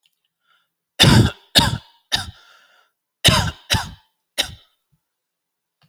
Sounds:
Cough